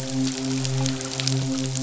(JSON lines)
{"label": "biophony, midshipman", "recorder": "SoundTrap 500"}